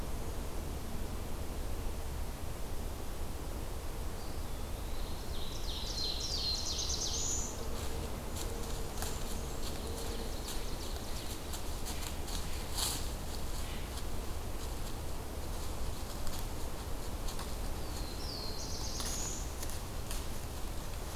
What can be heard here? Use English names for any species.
Eastern Wood-Pewee, Ovenbird, Black-throated Blue Warbler, Blackburnian Warbler